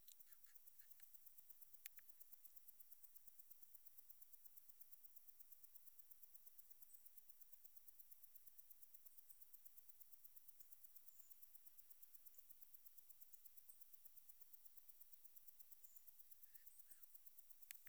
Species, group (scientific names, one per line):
Omocestus viridulus
Orthoptera